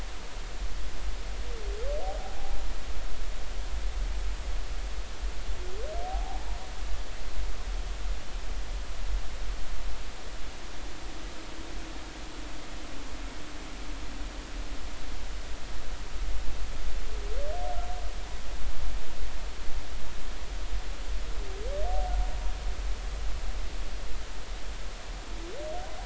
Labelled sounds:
2.2	2.5	humpback whale, 0.80 to 0.86 kHz
6.1	6.5	humpback whale, 0.80 to 0.93 kHz

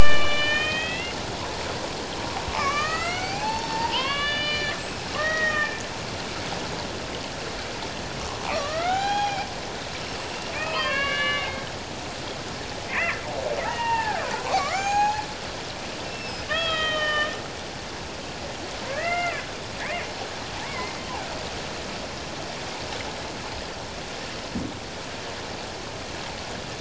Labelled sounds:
0.4	1.2	killer whale, Bigg's (transient), 2.4 to 3.8 kHz
2.5	5.8	killer whale, Bigg's (transient), 0.78 to 7.9 kHz
8.5	9.5	killer whale, Bigg's (transient), 0.78 to 6.6 kHz
10.3	11.7	killer whale, Bigg's (transient), 0.91 to 4.6 kHz
12.9	14.2	killer whale, Bigg's (transient), 0.78 to 2.9 kHz
14.6	15.2	killer whale, Bigg's (transient), 0.78 to 7.6 kHz
16.0	17.3	killer whale, Bigg's (transient), 1.1 to 7.2 kHz
18.9	19.5	killer whale, Bigg's (transient), 1.2 to 4.9 kHz
20.6	20.9	killer whale, Bigg's (transient), 0.81 to 2.3 kHz

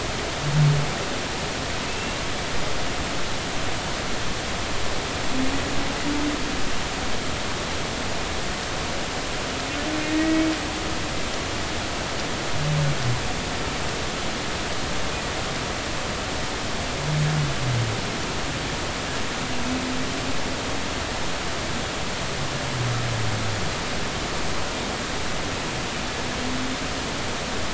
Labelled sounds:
1.9	2.2	humpback whale, 2.6 to 2.8 kHz
10.0	10.4	humpback whale, 1.8 to 2.0 kHz

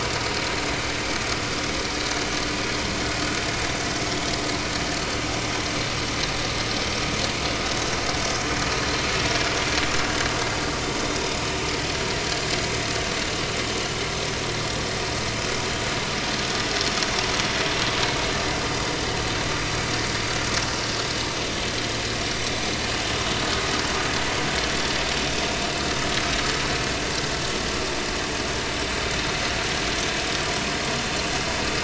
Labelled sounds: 29.2	29.5	vessel noise, 6.1 to 6.3 kHz

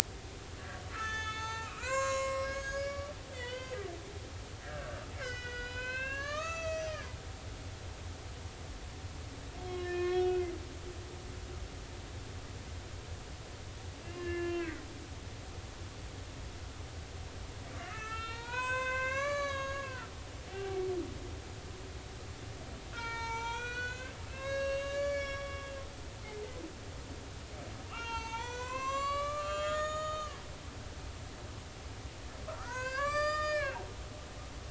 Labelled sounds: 0.6	3.9	humpback whale, 0.83 to 7.6 kHz
4.6	6.9	humpback whale, 0.93 to 7.1 kHz
9.6	10.4	humpback whale, 1.0 to 5.5 kHz
14.0	14.8	humpback whale, 1.7 to 2.9 kHz
17.9	20.1	humpback whale, 0.86 to 7.8 kHz
20.5	20.8	humpback whale, 0.80 to 0.83 kHz
22.9	25.7	humpback whale, 0.83 to 7.9 kHz
27.9	30.4	humpback whale, 0.83 to 7.5 kHz
32.5	34.6	humpback whale, 0.90 to 8.0 kHz

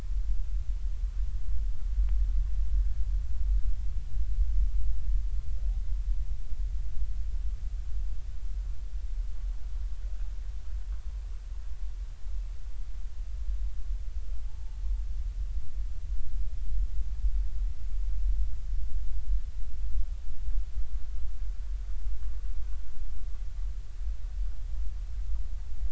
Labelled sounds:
14.4	14.8	humpback whale, 0.80 to 0.93 kHz

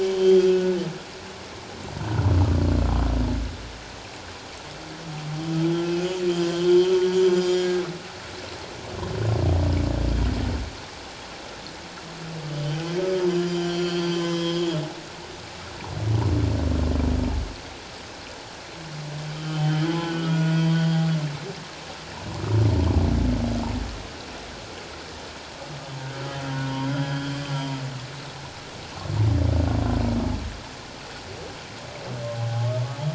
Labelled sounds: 0.1	0.8	humpback whale, 1.4 to 3.4 kHz
6.5	6.9	humpback whale, 3.1 to 3.3 kHz
7.4	7.8	humpback whale, 1.5 to 7.1 kHz
12.5	13.3	humpback whale, 1.2 to 3.2 kHz
13.7	14.8	humpback whale, 0.97 to 5.0 kHz
19.3	20.9	humpback whale, 0.81 to 7.7 kHz
26.7	27.4	humpback whale, 0.88 to 3.4 kHz
32.4	32.7	humpback whale, 0.78 to 0.91 kHz

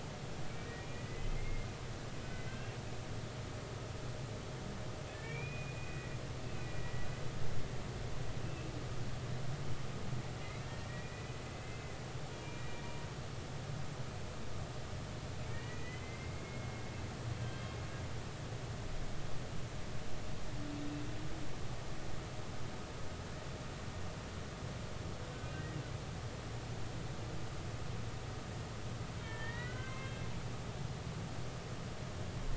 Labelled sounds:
0.8	2.7	humpback whale, 1.9 to 3.3 kHz
5.1	6.2	humpback whale, 1.7 to 2.6 kHz
6.4	7.1	humpback whale, 1.9 to 2.7 kHz
8.4	8.7	humpback whale, 2.6 to 2.8 kHz
10.4	11.9	humpback whale, 1.8 to 2.8 kHz
12.4	12.8	humpback whale, 2.3 to 2.5 kHz
15.5	16.8	humpback whale, 1.8 to 2.5 kHz
17.3	17.8	humpback whale, 3.1 to 3.3 kHz
25.4	25.7	humpback whale, 2.7 to 2.9 kHz
29.2	30.3	humpback whale, 0.99 to 2.7 kHz

